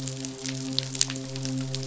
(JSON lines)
{"label": "biophony, midshipman", "recorder": "SoundTrap 500"}